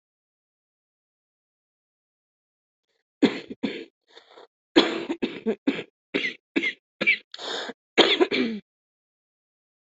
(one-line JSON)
{"expert_labels": [{"quality": "good", "cough_type": "dry", "dyspnea": false, "wheezing": false, "stridor": false, "choking": false, "congestion": false, "nothing": true, "diagnosis": "COVID-19", "severity": "severe"}], "gender": "female", "respiratory_condition": false, "fever_muscle_pain": false, "status": "COVID-19"}